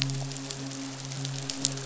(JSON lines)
{"label": "biophony, midshipman", "recorder": "SoundTrap 500"}